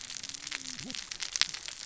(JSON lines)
{"label": "biophony, cascading saw", "recorder": "SoundTrap 600 or HydroMoth"}